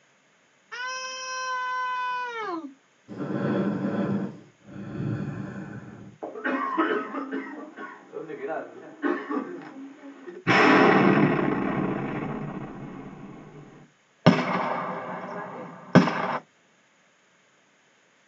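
At 0.71 seconds, someone screams. Then at 3.08 seconds, breathing is heard. After that, at 6.21 seconds, a person coughs. Next, at 10.44 seconds, there is an explosion. Finally, at 14.24 seconds, you can hear gunfire.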